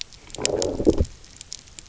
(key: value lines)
label: biophony, low growl
recorder: SoundTrap 300